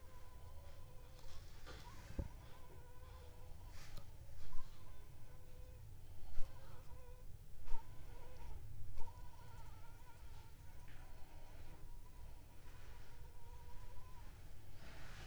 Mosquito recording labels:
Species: Anopheles funestus s.s.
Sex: female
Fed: unfed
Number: one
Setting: cup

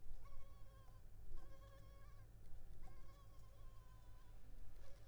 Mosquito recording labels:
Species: Culex pipiens complex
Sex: female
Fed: unfed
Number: one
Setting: cup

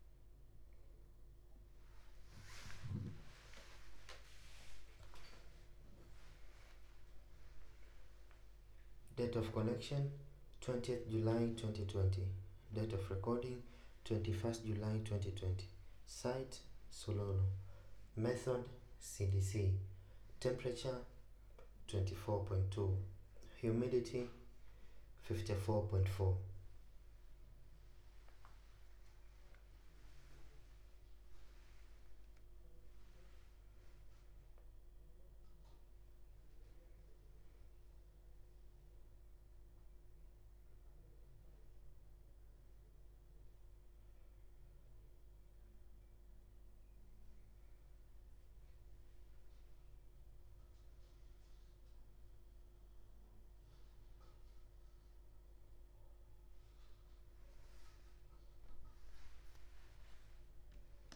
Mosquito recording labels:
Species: no mosquito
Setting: cup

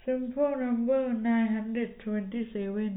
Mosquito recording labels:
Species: no mosquito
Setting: cup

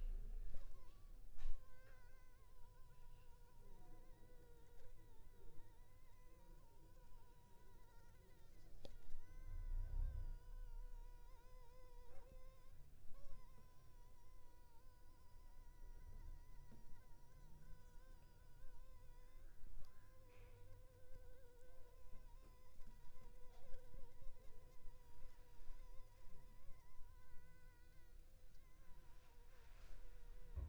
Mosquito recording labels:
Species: Anopheles funestus s.s.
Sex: female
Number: one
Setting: cup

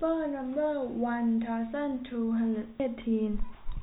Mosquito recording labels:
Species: no mosquito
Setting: cup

